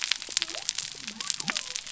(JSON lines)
{"label": "biophony", "recorder": "SoundTrap 300"}